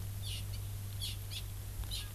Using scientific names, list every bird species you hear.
Chlorodrepanis virens